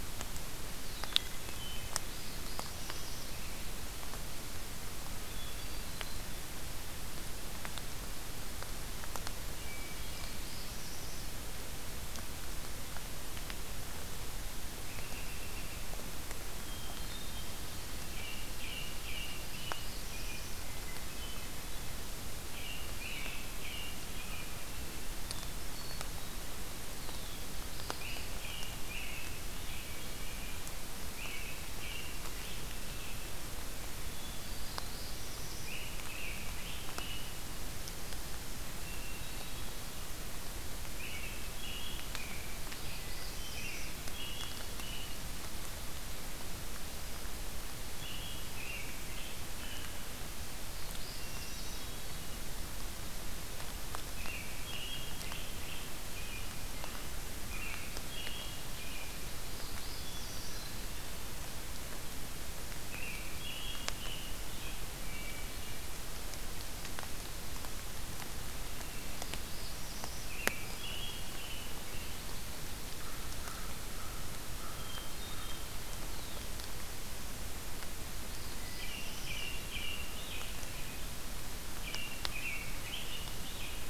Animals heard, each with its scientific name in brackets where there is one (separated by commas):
American Robin (Turdus migratorius), American Crow (Corvus brachyrhynchos), Hermit Thrush (Catharus guttatus), Black-throated Blue Warbler (Setophaga caerulescens)